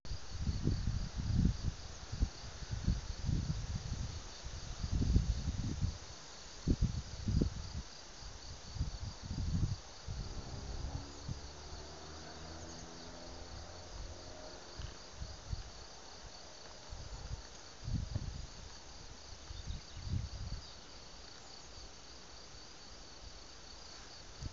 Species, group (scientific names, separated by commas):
Gryllus campestris, Orthoptera